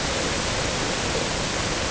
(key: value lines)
label: ambient
recorder: HydroMoth